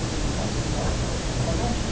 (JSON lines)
{"label": "biophony", "recorder": "SoundTrap 300"}